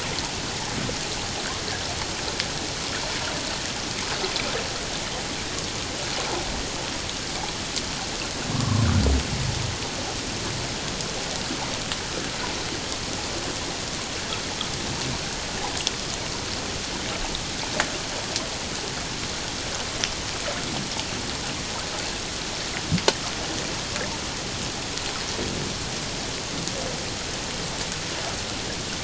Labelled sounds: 8.5	8.9	humpback whale, 1.0 to 1.2 kHz

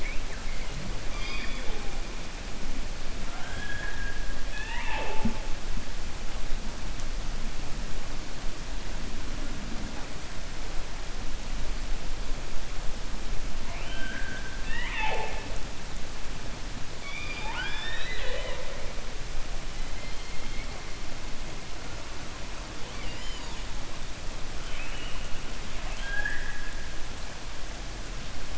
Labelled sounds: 3.2	4.2	killer whale, 0.72 to 3.4 kHz
16.9	18.8	killer whale, 0.48 to 5.4 kHz
24.6	25.3	killer whale, 1.4 to 3.2 kHz
25.7	26.7	killer whale, 0.65 to 3.3 kHz

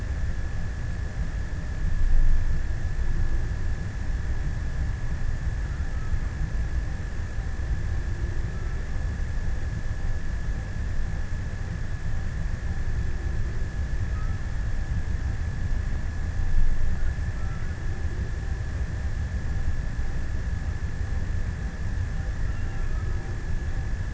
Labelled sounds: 13.2	15.5	killer whale, offshore, 0.54 to 1.8 kHz
21.8	23.7	killer whale, offshore, 0.99 to 1.6 kHz

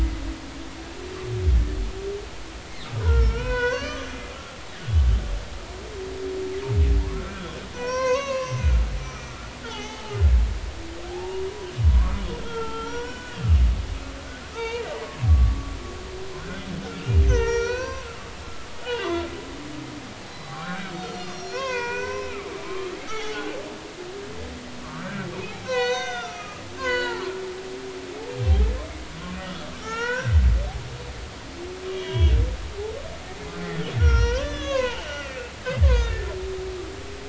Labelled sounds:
3.0	4.2	humpback whale, 0.90 to 6.2 kHz
7.1	9.3	humpback whale, 0.93 to 6.7 kHz
9.6	10.2	humpback whale, 0.80 to 6.6 kHz
11.1	13.4	humpback whale, 0.80 to 3.4 kHz
14.5	15.7	humpback whale, 0.86 to 3.8 kHz
16.8	18.1	humpback whale, 0.86 to 6.4 kHz
18.8	19.3	humpback whale, 0.93 to 3.6 kHz
20.2	22.5	humpback whale, 0.80 to 7.4 kHz
23.0	23.6	humpback whale, 0.80 to 5.8 kHz
24.8	25.3	humpback whale, 1.0 to 1.7 kHz
25.6	27.3	humpback whale, 0.83 to 7.1 kHz
29.8	30.4	humpback whale, 0.83 to 4.0 kHz
31.9	32.4	humpback whale, 0.93 to 3.4 kHz
33.6	36.3	humpback whale, 0.83 to 6.0 kHz

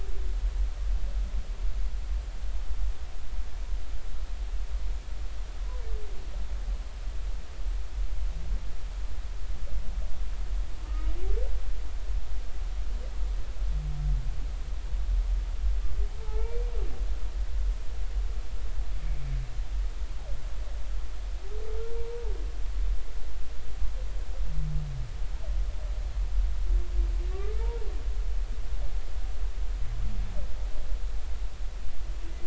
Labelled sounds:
5.6	5.9	humpback whale, 0.93 to 1.1 kHz
16.2	16.7	humpback whale, 0.80 to 2.5 kHz
19.0	19.4	humpback whale, 2.1 to 2.4 kHz
27.3	27.9	humpback whale, 0.86 to 1.2 kHz

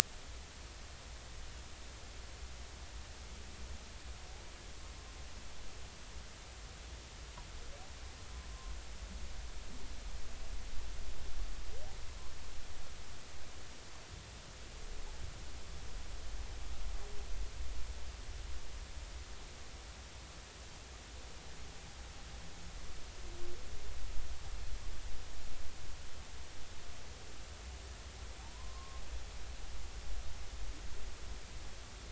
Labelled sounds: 28.4	29.0	humpback whale, 0.80 to 1.1 kHz

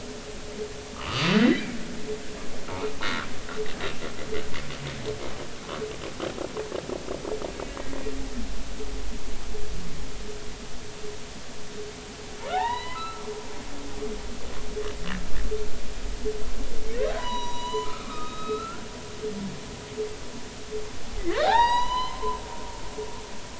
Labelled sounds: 0.9	1.8	humpback whale, 1.0 to 2.4 kHz
3.0	3.3	humpback whale, 1.3 to 1.6 kHz
12.5	13.2	humpback whale, 0.80 to 4.1 kHz
17.2	18.9	humpback whale, 0.86 to 7.0 kHz
21.2	22.4	humpback whale, 0.80 to 7.9 kHz

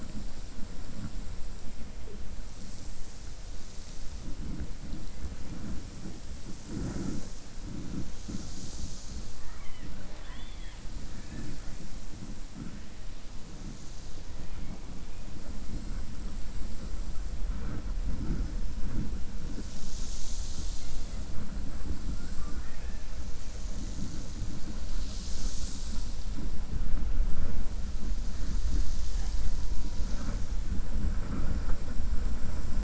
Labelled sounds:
9.4	10.8	killer whale, 0.61 to 3.6 kHz
22.1	23.0	killer whale, 1.1 to 2.6 kHz

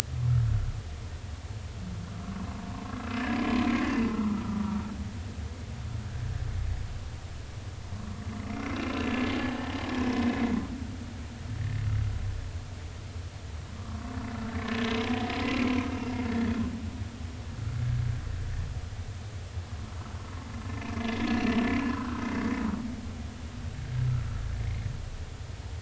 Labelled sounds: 2.2	2.6	humpback whale, 0.90 to 1.2 kHz
4.1	4.6	humpback whale, 1.1 to 1.4 kHz
9.3	9.6	humpback whale, 0.80 to 0.86 kHz
13.8	14.1	humpback whale, 1.1 to 1.2 kHz
21.3	21.5	humpback whale, 2.6 to 4.2 kHz
21.9	22.2	humpback whale, 1.2 to 1.6 kHz

